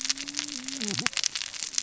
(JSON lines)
{"label": "biophony, cascading saw", "recorder": "SoundTrap 600 or HydroMoth"}